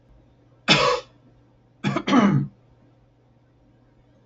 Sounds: Throat clearing